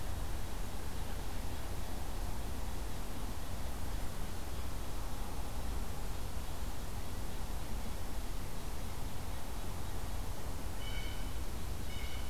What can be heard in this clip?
Blue Jay